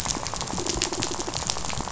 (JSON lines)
{"label": "biophony, rattle", "recorder": "SoundTrap 500"}